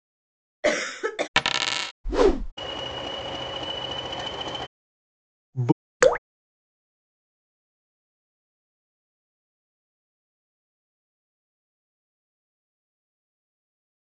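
First, at the start, someone coughs. After that, about 1 second in, a coin drops. Next, about 2 seconds in, there is a whoosh. Following that, about 3 seconds in, a train can be heard. Afterwards, about 6 seconds in, someone says "bird". Finally, about 6 seconds in, dripping is heard.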